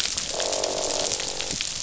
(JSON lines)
{"label": "biophony, croak", "recorder": "SoundTrap 500"}